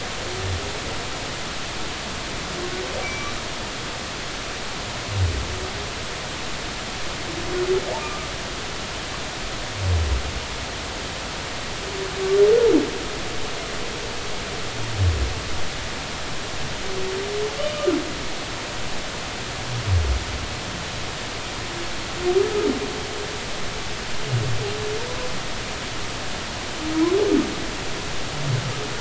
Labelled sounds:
3.0	3.3	humpback whale, 2.2 to 5.9 kHz
8.0	8.3	humpback whale, 1.2 to 1.3 kHz

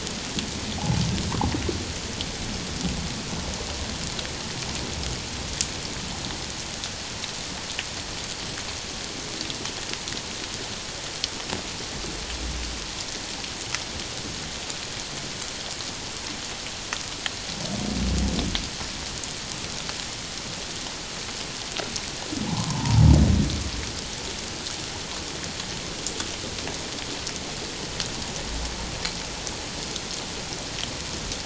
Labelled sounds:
22.4	23.0	humpback whale, 0.78 to 1.1 kHz

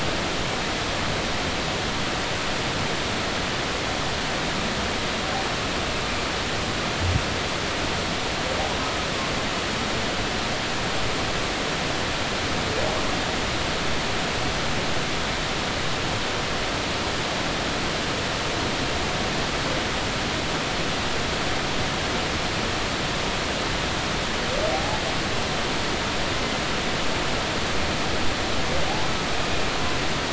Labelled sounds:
24.7	25.0	humpback whale, 0.80 to 0.93 kHz

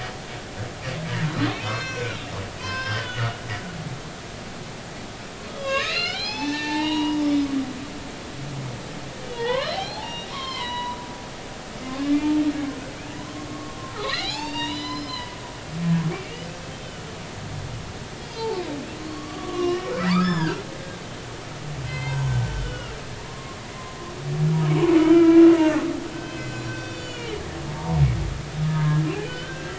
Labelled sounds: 1.2	2.2	humpback whale, 1.3 to 6.8 kHz
2.6	3.4	humpback whale, 0.93 to 5.4 kHz
5.5	7.5	humpback whale, 0.80 to 6.3 kHz
9.3	11.0	humpback whale, 0.80 to 5.7 kHz
13.5	15.4	humpback whale, 0.80 to 7.6 kHz
16.1	16.4	humpback whale, 2.1 to 2.5 kHz
18.2	18.6	humpback whale, 0.83 to 4.8 kHz
19.1	20.6	humpback whale, 0.90 to 5.4 kHz
21.0	21.2	humpback whale, 3.0 to 3.1 kHz
21.8	23.0	humpback whale, 0.86 to 4.3 kHz
23.2	23.6	humpback whale, 0.96 to 1.1 kHz
24.7	25.5	humpback whale, 1.2 to 3.2 kHz
26.1	27.4	humpback whale, 1.5 to 7.2 kHz
27.7	29.7	humpback whale, 0.86 to 3.1 kHz

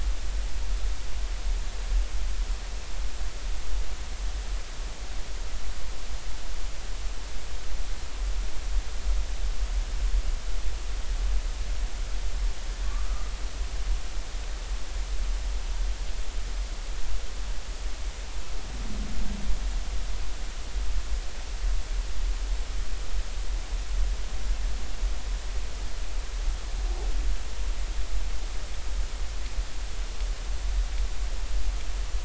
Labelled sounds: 12.8	13.3	humpback whale, 1.1 to 1.3 kHz

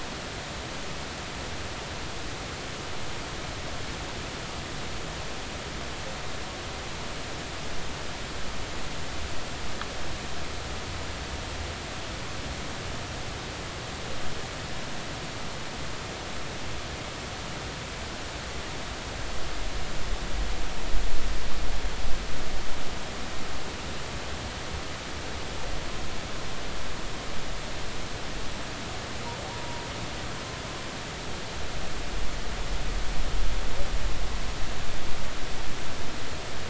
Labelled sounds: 29.5	29.8	humpback whale, 0.90 to 1.0 kHz

